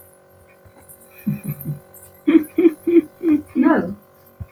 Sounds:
Laughter